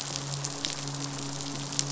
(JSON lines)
{"label": "biophony, midshipman", "recorder": "SoundTrap 500"}